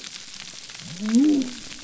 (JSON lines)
{"label": "biophony", "recorder": "SoundTrap 300"}